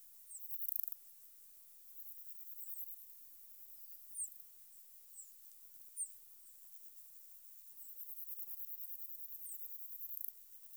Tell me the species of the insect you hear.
Platycleis affinis